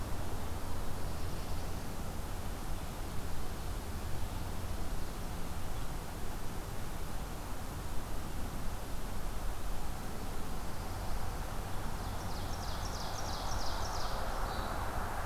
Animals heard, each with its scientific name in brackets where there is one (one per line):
Ovenbird (Seiurus aurocapilla)